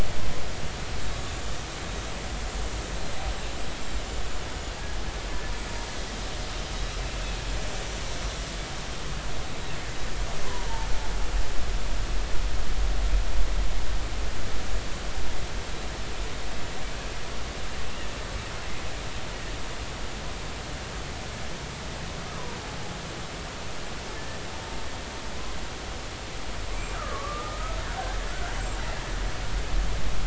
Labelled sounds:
1.7	2.1	killer whale, Bigg's (transient), 6.1 to 6.4 kHz
10.4	10.9	killer whale, Bigg's (transient), 0.83 to 1.1 kHz
22.3	22.6	killer whale, Bigg's (transient), 0.90 to 1.3 kHz
26.9	27.8	killer whale, Bigg's (transient), 1.0 to 1.4 kHz
28.3	28.6	killer whale, Bigg's (transient), 1.3 to 1.6 kHz

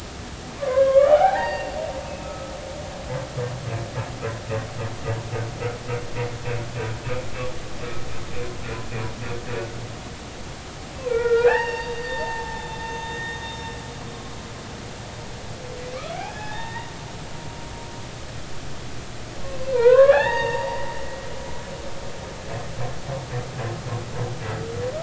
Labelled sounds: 1.1	1.8	humpback whale, 0.80 to 4.7 kHz
2.0	2.5	humpback whale, 1.2 to 2.7 kHz
10.9	13.0	humpback whale, 0.80 to 5.4 kHz
16.1	16.9	humpback whale, 0.80 to 3.8 kHz
19.4	20.9	humpback whale, 0.80 to 6.7 kHz

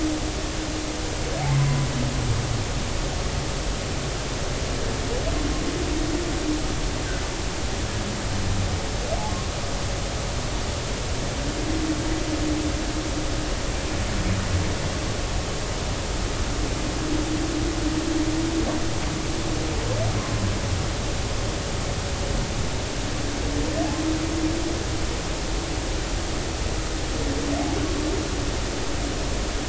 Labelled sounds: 1.5	1.9	humpback whale, 0.96 to 1.1 kHz

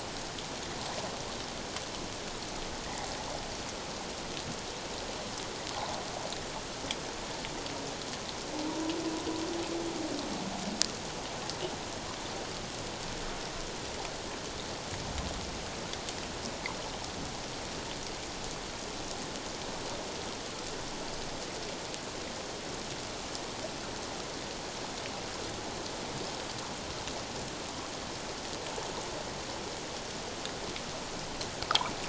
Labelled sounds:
8.7	8.9	humpback whale, 0.91 to 1.0 kHz

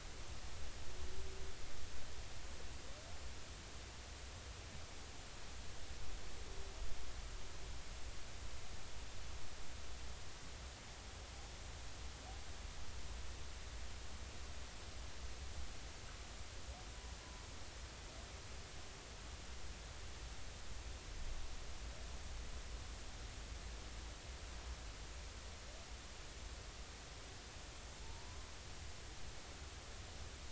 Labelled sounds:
28.0	28.4	humpback whale, 0.86 to 1.1 kHz

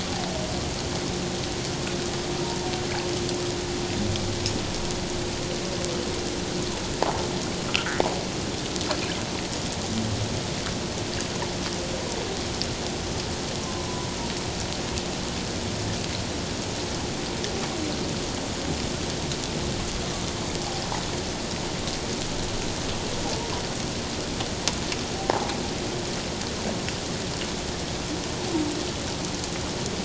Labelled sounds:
7.7	8.1	fish, 1.2 to 2.0 kHz
13.6	13.9	humpback whale, 0.97 to 1.1 kHz

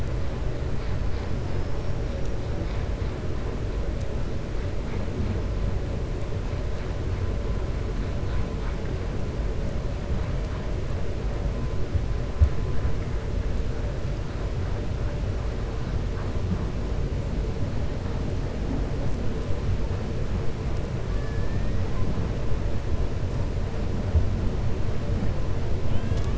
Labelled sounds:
1.4	1.9	killer whale, 4.7 to 5.6 kHz
21.1	21.7	killer whale, 1.1 to 2.5 kHz

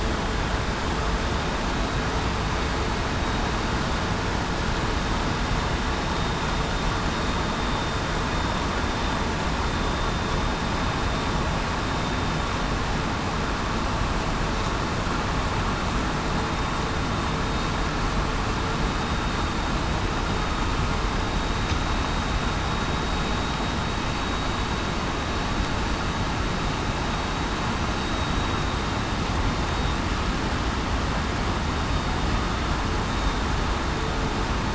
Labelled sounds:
18.8	19.3	vessel noise, 3.68 to 3.73 kHz

